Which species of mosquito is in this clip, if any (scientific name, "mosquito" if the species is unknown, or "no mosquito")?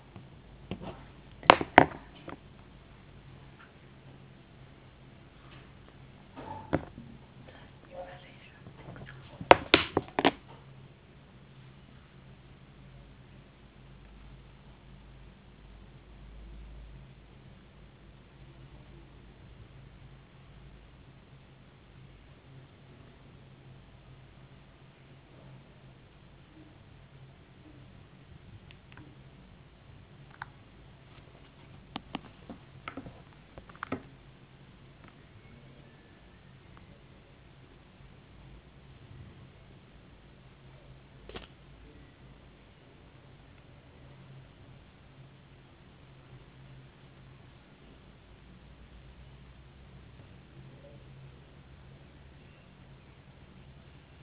no mosquito